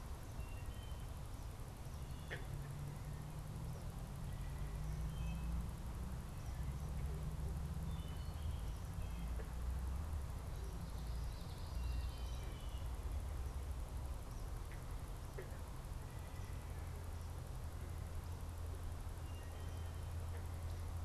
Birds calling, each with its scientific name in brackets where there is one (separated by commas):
Common Yellowthroat (Geothlypis trichas), Wood Thrush (Hylocichla mustelina)